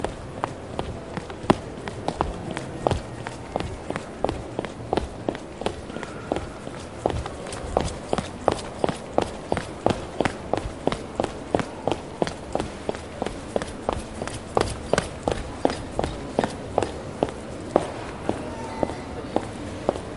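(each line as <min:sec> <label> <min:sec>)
0:00.0 Fast rhythmic footsteps outdoors. 0:20.2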